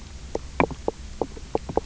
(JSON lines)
{"label": "biophony, knock croak", "recorder": "SoundTrap 300"}